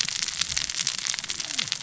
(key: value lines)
label: biophony, cascading saw
recorder: SoundTrap 600 or HydroMoth